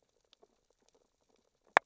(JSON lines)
{"label": "biophony, sea urchins (Echinidae)", "recorder": "SoundTrap 600 or HydroMoth"}